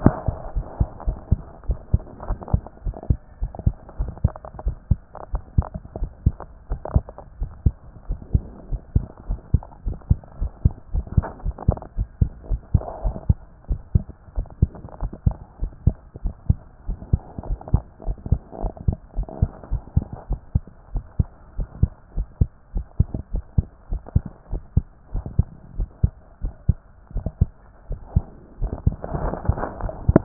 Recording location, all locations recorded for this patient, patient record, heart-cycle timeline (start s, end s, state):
pulmonary valve (PV)
aortic valve (AV)+pulmonary valve (PV)+tricuspid valve (TV)+mitral valve (MV)
#Age: Child
#Sex: Male
#Height: 125.0 cm
#Weight: 25.4 kg
#Pregnancy status: False
#Murmur: Absent
#Murmur locations: nan
#Most audible location: nan
#Systolic murmur timing: nan
#Systolic murmur shape: nan
#Systolic murmur grading: nan
#Systolic murmur pitch: nan
#Systolic murmur quality: nan
#Diastolic murmur timing: nan
#Diastolic murmur shape: nan
#Diastolic murmur grading: nan
#Diastolic murmur pitch: nan
#Diastolic murmur quality: nan
#Outcome: Abnormal
#Campaign: 2014 screening campaign
0.00	0.16	S1
0.16	0.24	systole
0.24	0.36	S2
0.36	0.54	diastole
0.54	0.66	S1
0.66	0.78	systole
0.78	0.88	S2
0.88	1.06	diastole
1.06	1.18	S1
1.18	1.26	systole
1.26	1.42	S2
1.42	1.66	diastole
1.66	1.80	S1
1.80	1.90	systole
1.90	2.04	S2
2.04	2.26	diastole
2.26	2.38	S1
2.38	2.50	systole
2.50	2.62	S2
2.62	2.84	diastole
2.84	2.96	S1
2.96	3.06	systole
3.06	3.20	S2
3.20	3.42	diastole
3.42	3.52	S1
3.52	3.64	systole
3.64	3.74	S2
3.74	3.98	diastole
3.98	4.14	S1
4.14	4.20	systole
4.20	4.34	S2
4.34	4.64	diastole
4.64	4.78	S1
4.78	4.86	systole
4.86	5.00	S2
5.00	5.30	diastole
5.30	5.42	S1
5.42	5.54	systole
5.54	5.68	S2
5.68	5.96	diastole
5.96	6.10	S1
6.10	6.24	systole
6.24	6.40	S2
6.40	6.70	diastole
6.70	6.82	S1
6.82	6.94	systole
6.94	7.10	S2
7.10	7.38	diastole
7.38	7.52	S1
7.52	7.62	systole
7.62	7.76	S2
7.76	8.06	diastole
8.06	8.20	S1
8.20	8.32	systole
8.32	8.46	S2
8.46	8.70	diastole
8.70	8.80	S1
8.80	8.92	systole
8.92	9.06	S2
9.06	9.28	diastole
9.28	9.40	S1
9.40	9.50	systole
9.50	9.62	S2
9.62	9.86	diastole
9.86	9.98	S1
9.98	10.06	systole
10.06	10.20	S2
10.20	10.40	diastole
10.40	10.52	S1
10.52	10.60	systole
10.60	10.76	S2
10.76	10.94	diastole
10.94	11.06	S1
11.06	11.14	systole
11.14	11.26	S2
11.26	11.44	diastole
11.44	11.56	S1
11.56	11.66	systole
11.66	11.76	S2
11.76	11.96	diastole
11.96	12.08	S1
12.08	12.18	systole
12.18	12.32	S2
12.32	12.50	diastole
12.50	12.62	S1
12.62	12.70	systole
12.70	12.82	S2
12.82	13.02	diastole
13.02	13.16	S1
13.16	13.26	systole
13.26	13.40	S2
13.40	13.66	diastole
13.66	13.82	S1
13.82	13.90	systole
13.90	14.06	S2
14.06	14.36	diastole
14.36	14.46	S1
14.46	14.58	systole
14.58	14.72	S2
14.72	15.00	diastole
15.00	15.12	S1
15.12	15.22	systole
15.22	15.38	S2
15.38	15.62	diastole
15.62	15.72	S1
15.72	15.82	systole
15.82	15.96	S2
15.96	16.24	diastole
16.24	16.34	S1
16.34	16.46	systole
16.46	16.60	S2
16.60	16.88	diastole
16.88	16.98	S1
16.98	17.10	systole
17.10	17.22	S2
17.22	17.46	diastole
17.46	17.60	S1
17.60	17.72	systole
17.72	17.84	S2
17.84	18.06	diastole
18.06	18.18	S1
18.18	18.30	systole
18.30	18.40	S2
18.40	18.62	diastole
18.62	18.74	S1
18.74	18.84	systole
18.84	18.96	S2
18.96	19.16	diastole
19.16	19.28	S1
19.28	19.40	systole
19.40	19.50	S2
19.50	19.70	diastole
19.70	19.82	S1
19.82	19.92	systole
19.92	20.08	S2
20.08	20.30	diastole
20.30	20.40	S1
20.40	20.54	systole
20.54	20.64	S2
20.64	20.94	diastole
20.94	21.04	S1
21.04	21.16	systole
21.16	21.30	S2
21.30	21.58	diastole
21.58	21.68	S1
21.68	21.80	systole
21.80	21.92	S2
21.92	22.16	diastole
22.16	22.28	S1
22.28	22.40	systole
22.40	22.50	S2
22.50	22.74	diastole
22.74	22.86	S1
22.86	22.96	systole
22.96	23.10	S2
23.10	23.32	diastole
23.32	23.44	S1
23.44	23.54	systole
23.54	23.68	S2
23.68	23.90	diastole
23.90	24.02	S1
24.02	24.12	systole
24.12	24.26	S2
24.26	24.52	diastole
24.52	24.62	S1
24.62	24.72	systole
24.72	24.86	S2
24.86	25.14	diastole
25.14	25.26	S1
25.26	25.36	systole
25.36	25.48	S2
25.48	25.76	diastole
25.76	25.88	S1
25.88	26.00	systole
26.00	26.14	S2
26.14	26.44	diastole
26.44	26.54	S1
26.54	26.68	systole
26.68	26.78	S2
26.78	27.08	diastole
27.08	27.24	S1
27.24	27.40	systole
27.40	27.56	S2
27.56	27.86	diastole
27.86	28.00	S1
28.00	28.14	systole
28.14	28.30	S2
28.30	28.60	diastole
28.60	28.72	S1
28.72	28.84	systole
28.84	28.98	S2
28.98	29.18	diastole
29.18	29.34	S1
29.34	29.46	systole
29.46	29.60	S2
29.60	29.80	diastole
29.80	29.94	S1
29.94	30.10	systole
30.10	30.24	S2